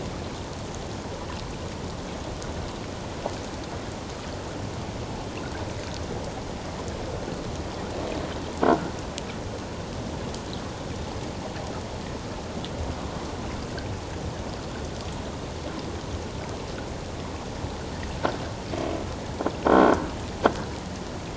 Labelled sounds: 8.6	8.9	croaking sound likely from a nearby submerged object, 1.3 to 1.6 kHz
19.6	20.0	croaking sound likely from a nearby submerged object, 1.3 to 3.4 kHz

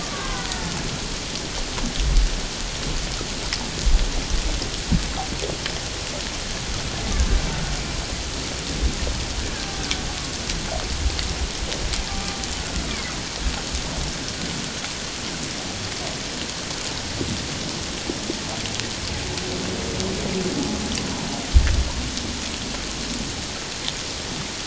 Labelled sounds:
0.0	0.7	killer whale, Bigg's (transient), 0.94 to 1.9 kHz
12.1	12.4	killer whale, Bigg's (transient), 1.1 to 1.2 kHz

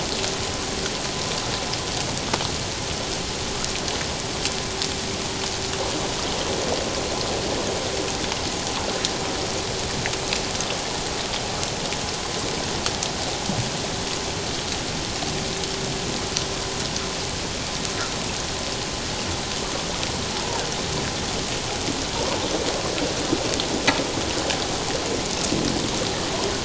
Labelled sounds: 20.3	20.6	humpback whale, 0.81 to 1.0 kHz

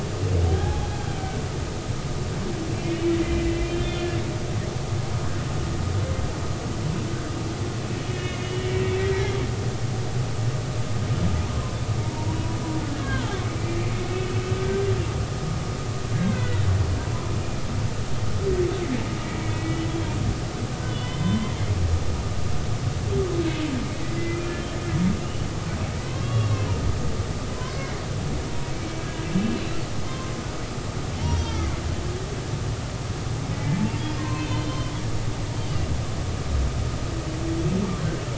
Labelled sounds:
0.5	1.8	humpback whale, 0.80 to 1.7 kHz
2.7	4.1	humpback whale, 1.9 to 3.6 kHz
8.0	8.5	humpback whale, 2.0 to 3.0 kHz
11.5	12.6	humpback whale, 0.86 to 1.2 kHz
12.9	13.4	humpback whale, 1.3 to 3.3 kHz
14.1	14.4	humpback whale, 2.5 to 2.7 kHz
16.1	16.6	humpback whale, 1.4 to 2.2 kHz
19.2	19.6	humpback whale, 2.2 to 2.4 kHz
20.6	21.5	humpback whale, 0.96 to 3.6 kHz
24.2	24.5	humpback whale, 2.0 to 2.5 kHz
26.1	26.7	humpback whale, 0.96 to 3.4 kHz
27.7	28.0	humpback whale, 2.0 to 2.2 kHz
28.5	29.1	humpback whale, 0.90 to 2.4 kHz
30.1	30.3	humpback whale, 0.99 to 1.1 kHz
31.2	31.7	humpback whale, 1.2 to 6.1 kHz
34.2	34.9	humpback whale, 0.90 to 4.3 kHz

